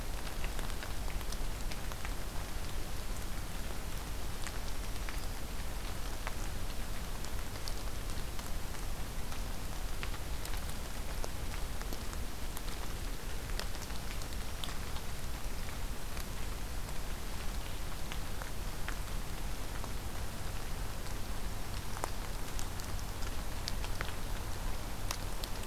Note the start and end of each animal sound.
4.6s-5.5s: Black-throated Green Warbler (Setophaga virens)

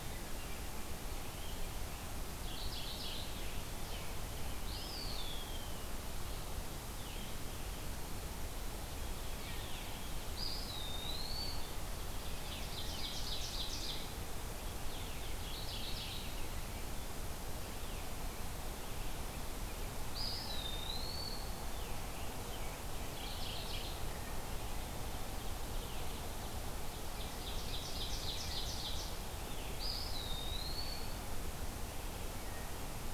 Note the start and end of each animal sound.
2.3s-3.5s: Mourning Warbler (Geothlypis philadelphia)
4.6s-5.8s: Eastern Wood-Pewee (Contopus virens)
10.3s-11.9s: Eastern Wood-Pewee (Contopus virens)
12.0s-14.1s: Ovenbird (Seiurus aurocapilla)
15.4s-16.3s: Mourning Warbler (Geothlypis philadelphia)
20.0s-21.5s: Eastern Wood-Pewee (Contopus virens)
22.7s-24.0s: Mourning Warbler (Geothlypis philadelphia)
26.9s-29.1s: Ovenbird (Seiurus aurocapilla)
29.6s-31.3s: Eastern Wood-Pewee (Contopus virens)

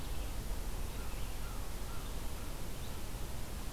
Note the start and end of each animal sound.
0.0s-3.7s: Red-eyed Vireo (Vireo olivaceus)
0.8s-3.1s: American Crow (Corvus brachyrhynchos)

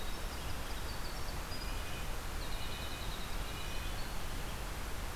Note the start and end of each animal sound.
0.0s-4.4s: Winter Wren (Troglodytes hiemalis)
0.0s-5.2s: Red-breasted Nuthatch (Sitta canadensis)

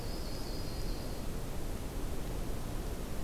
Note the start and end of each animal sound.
0.0s-1.3s: Yellow-rumped Warbler (Setophaga coronata)
0.0s-3.2s: Blue-headed Vireo (Vireo solitarius)

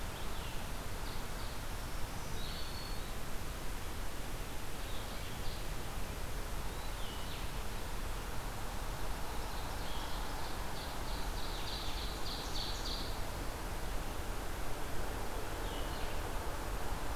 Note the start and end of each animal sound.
0.1s-17.2s: Blue-headed Vireo (Vireo solitarius)
0.6s-1.7s: Ovenbird (Seiurus aurocapilla)
1.6s-3.3s: Black-throated Green Warbler (Setophaga virens)
4.5s-5.7s: Ovenbird (Seiurus aurocapilla)
9.2s-13.3s: Ovenbird (Seiurus aurocapilla)

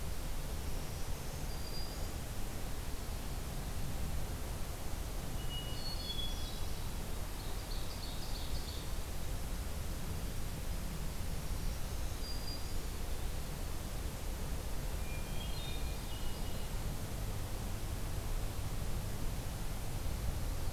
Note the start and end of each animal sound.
0.5s-2.3s: Black-throated Green Warbler (Setophaga virens)
5.2s-7.0s: Hermit Thrush (Catharus guttatus)
7.2s-9.1s: Ovenbird (Seiurus aurocapilla)
11.3s-13.0s: Black-throated Green Warbler (Setophaga virens)
15.0s-16.7s: Hermit Thrush (Catharus guttatus)

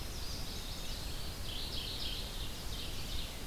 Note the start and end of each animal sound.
0.0s-1.2s: Chestnut-sided Warbler (Setophaga pensylvanica)
0.0s-1.5s: Eastern Wood-Pewee (Contopus virens)
0.0s-3.5s: Red-eyed Vireo (Vireo olivaceus)
1.2s-2.5s: Mourning Warbler (Geothlypis philadelphia)
1.7s-3.5s: Ovenbird (Seiurus aurocapilla)

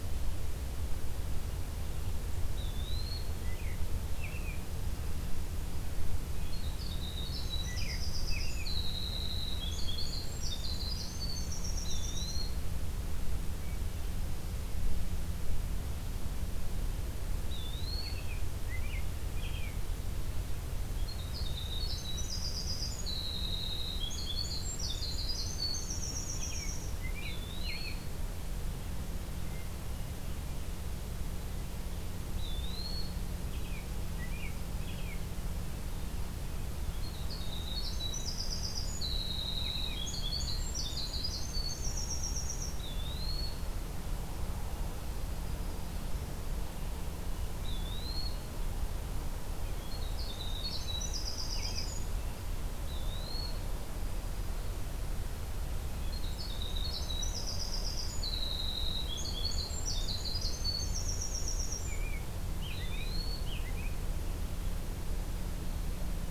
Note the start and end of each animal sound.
2.5s-3.3s: Eastern Wood-Pewee (Contopus virens)
3.2s-4.7s: American Robin (Turdus migratorius)
6.4s-12.5s: Winter Wren (Troglodytes hiemalis)
7.6s-8.7s: American Robin (Turdus migratorius)
11.8s-12.7s: Eastern Wood-Pewee (Contopus virens)
17.4s-18.3s: Eastern Wood-Pewee (Contopus virens)
17.9s-19.8s: American Robin (Turdus migratorius)
20.9s-26.9s: Winter Wren (Troglodytes hiemalis)
26.1s-28.0s: American Robin (Turdus migratorius)
27.1s-28.1s: Eastern Wood-Pewee (Contopus virens)
32.3s-33.3s: Eastern Wood-Pewee (Contopus virens)
33.4s-35.2s: American Robin (Turdus migratorius)
36.7s-42.8s: Winter Wren (Troglodytes hiemalis)
39.5s-40.0s: American Robin (Turdus migratorius)
42.7s-43.7s: Eastern Wood-Pewee (Contopus virens)
47.5s-48.6s: Eastern Wood-Pewee (Contopus virens)
49.6s-52.1s: Winter Wren (Troglodytes hiemalis)
51.5s-51.9s: American Robin (Turdus migratorius)
52.8s-53.6s: Eastern Wood-Pewee (Contopus virens)
56.0s-62.0s: Winter Wren (Troglodytes hiemalis)
61.8s-64.0s: American Robin (Turdus migratorius)
62.7s-63.5s: Eastern Wood-Pewee (Contopus virens)

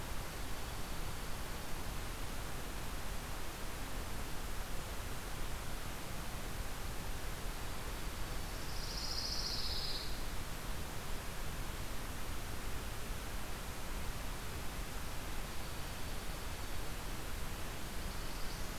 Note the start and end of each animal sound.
0.0s-1.9s: Dark-eyed Junco (Junco hyemalis)
7.3s-8.7s: Dark-eyed Junco (Junco hyemalis)
8.4s-10.2s: Pine Warbler (Setophaga pinus)
15.4s-17.0s: Dark-eyed Junco (Junco hyemalis)

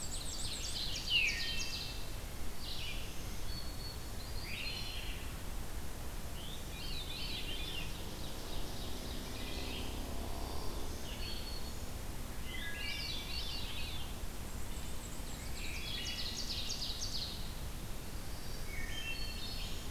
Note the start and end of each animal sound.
0.0s-1.1s: Black-and-white Warbler (Mniotilta varia)
0.0s-2.3s: Ovenbird (Seiurus aurocapilla)
0.0s-19.9s: Red-eyed Vireo (Vireo olivaceus)
0.6s-2.1s: Veery (Catharus fuscescens)
2.5s-4.3s: Black-throated Green Warbler (Setophaga virens)
4.3s-5.1s: Wood Thrush (Hylocichla mustelina)
6.3s-8.0s: Veery (Catharus fuscescens)
7.2s-9.7s: Ovenbird (Seiurus aurocapilla)
9.2s-9.8s: Wood Thrush (Hylocichla mustelina)
10.3s-12.1s: Black-throated Green Warbler (Setophaga virens)
12.4s-13.6s: Wood Thrush (Hylocichla mustelina)
12.4s-14.2s: Veery (Catharus fuscescens)
13.9s-16.1s: Black-and-white Warbler (Mniotilta varia)
15.2s-17.6s: Ovenbird (Seiurus aurocapilla)
15.3s-16.3s: Wood Thrush (Hylocichla mustelina)
18.1s-19.9s: Black-throated Green Warbler (Setophaga virens)
18.6s-19.4s: Wood Thrush (Hylocichla mustelina)

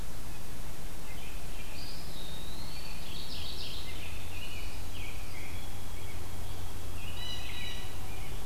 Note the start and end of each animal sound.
1.0s-2.0s: American Robin (Turdus migratorius)
1.6s-3.0s: Eastern Wood-Pewee (Contopus virens)
2.8s-4.2s: Mourning Warbler (Geothlypis philadelphia)
3.8s-5.7s: American Robin (Turdus migratorius)
4.9s-7.4s: White-throated Sparrow (Zonotrichia albicollis)
6.7s-7.9s: Blue Jay (Cyanocitta cristata)
6.8s-8.4s: Rose-breasted Grosbeak (Pheucticus ludovicianus)

